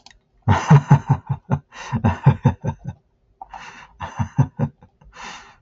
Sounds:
Laughter